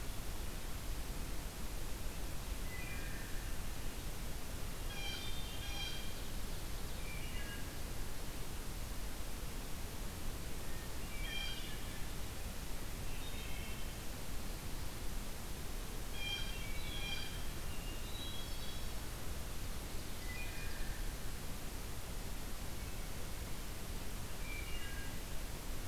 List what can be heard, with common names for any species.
Wood Thrush, Blue Jay, Hermit Thrush